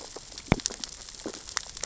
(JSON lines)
{"label": "biophony, sea urchins (Echinidae)", "recorder": "SoundTrap 600 or HydroMoth"}